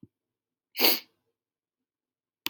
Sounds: Sniff